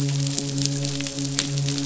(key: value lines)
label: biophony, midshipman
recorder: SoundTrap 500